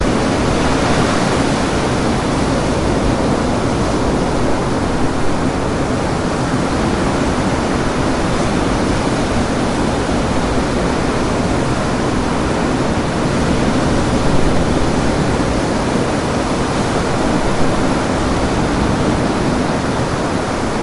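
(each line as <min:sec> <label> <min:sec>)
0:00.0 Water flows and splashes loudly in a constant manner. 0:20.8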